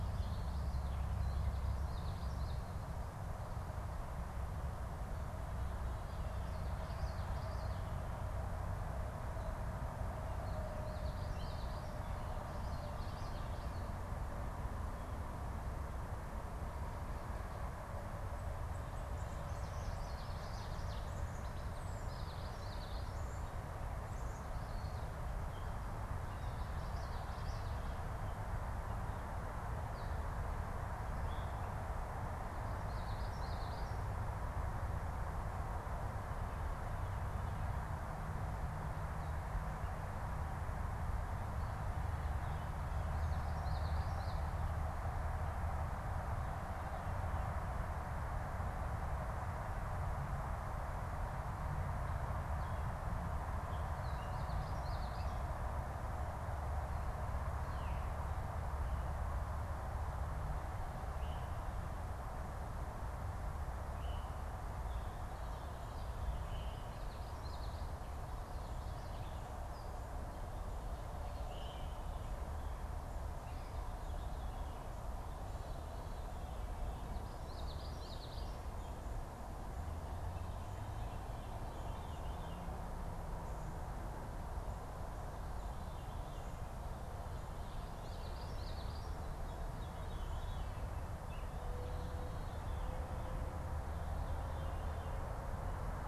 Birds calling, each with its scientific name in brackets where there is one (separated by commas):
Ovenbird (Seiurus aurocapilla), Common Yellowthroat (Geothlypis trichas), Veery (Catharus fuscescens)